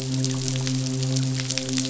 {"label": "biophony, midshipman", "recorder": "SoundTrap 500"}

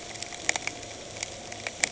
{"label": "anthrophony, boat engine", "recorder": "HydroMoth"}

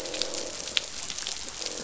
{"label": "biophony, croak", "recorder": "SoundTrap 500"}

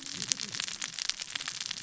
{"label": "biophony, cascading saw", "recorder": "SoundTrap 600 or HydroMoth"}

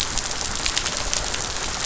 {"label": "biophony", "recorder": "SoundTrap 500"}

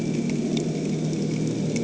{"label": "anthrophony, boat engine", "recorder": "HydroMoth"}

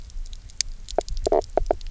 {"label": "biophony, knock croak", "recorder": "SoundTrap 300"}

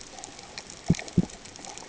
{"label": "ambient", "recorder": "HydroMoth"}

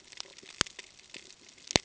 {"label": "ambient", "recorder": "HydroMoth"}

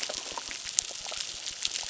{"label": "biophony, crackle", "recorder": "SoundTrap 600"}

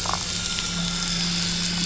{"label": "anthrophony, boat engine", "recorder": "SoundTrap 500"}
{"label": "biophony, damselfish", "recorder": "SoundTrap 500"}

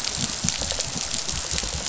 {"label": "biophony, rattle response", "recorder": "SoundTrap 500"}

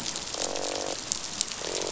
{"label": "biophony, croak", "recorder": "SoundTrap 500"}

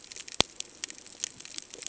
{"label": "ambient", "recorder": "HydroMoth"}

